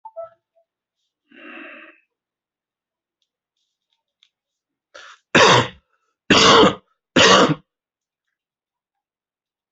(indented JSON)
{
  "expert_labels": [
    {
      "quality": "ok",
      "cough_type": "dry",
      "dyspnea": false,
      "wheezing": false,
      "stridor": false,
      "choking": false,
      "congestion": false,
      "nothing": true,
      "diagnosis": "lower respiratory tract infection",
      "severity": "mild"
    }
  ],
  "age": 45,
  "gender": "male",
  "respiratory_condition": false,
  "fever_muscle_pain": false,
  "status": "symptomatic"
}